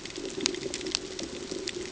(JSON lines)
{"label": "ambient", "recorder": "HydroMoth"}